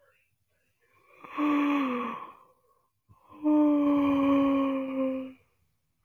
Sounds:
Sneeze